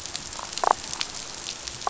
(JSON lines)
{"label": "biophony, damselfish", "recorder": "SoundTrap 500"}